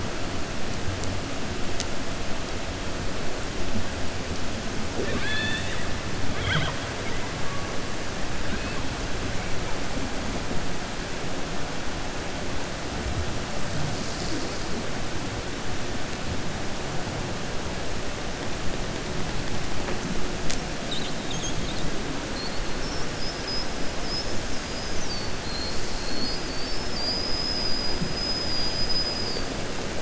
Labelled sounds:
22.7	23.7	killer whale, 5.0 to 5.9 kHz

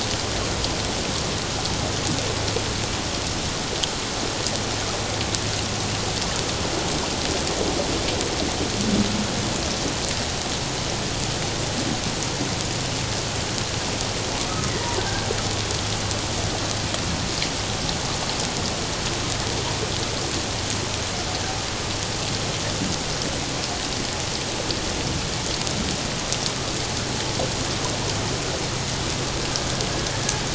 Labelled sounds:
14.5	14.7	humpback whale, 1.2 to 1.3 kHz

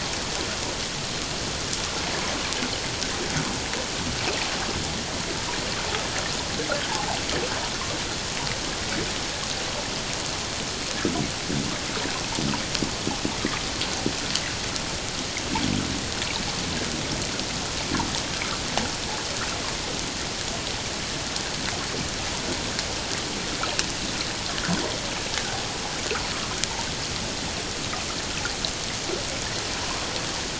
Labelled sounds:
6.9	7.2	water noise, 0.78 to 1.1 kHz

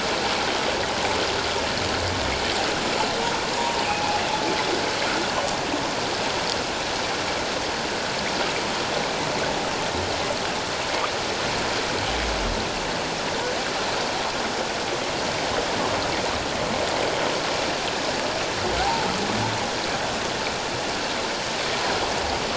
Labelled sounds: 18.8	19.1	humpback whale, 0.78 to 1.0 kHz

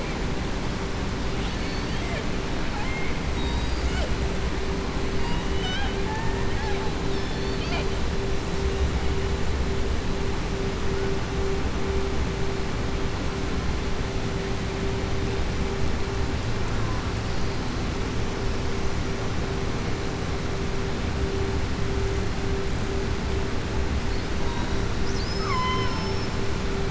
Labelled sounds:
1.3	2.3	killer whale, southern resident, 0.58 to 4.6 kHz
2.6	3.1	killer whale, southern resident, 0.81 to 3.1 kHz
5.1	6.0	killer whale, southern resident, 0.76 to 6.0 kHz
7.0	7.9	killer whale, southern resident, 0.65 to 5.4 kHz
24.9	25.9	killer whale, southern resident, 1.0 to 7.1 kHz

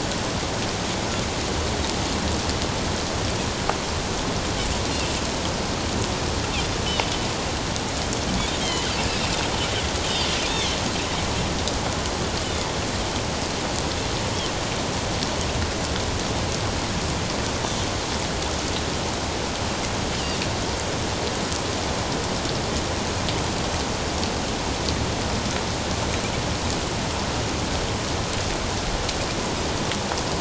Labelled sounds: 8.6	8.9	Pacific white-sided dolphin, 2.9 to 3.3 kHz
10.5	10.8	Pacific white-sided dolphin, 3.0 to 3.8 kHz

